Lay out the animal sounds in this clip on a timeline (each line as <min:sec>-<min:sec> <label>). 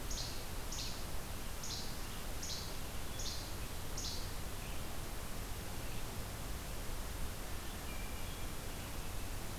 0:00.0-0:00.4 Least Flycatcher (Empidonax minimus)
0:00.7-0:00.9 Least Flycatcher (Empidonax minimus)
0:01.6-0:02.0 Least Flycatcher (Empidonax minimus)
0:02.3-0:02.7 Least Flycatcher (Empidonax minimus)
0:03.1-0:03.5 Least Flycatcher (Empidonax minimus)
0:03.8-0:04.2 Least Flycatcher (Empidonax minimus)
0:07.6-0:08.7 Hermit Thrush (Catharus guttatus)